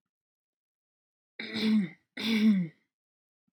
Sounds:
Throat clearing